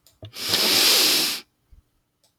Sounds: Sniff